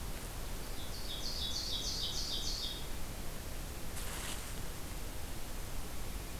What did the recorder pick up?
Ovenbird